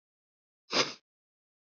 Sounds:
Sniff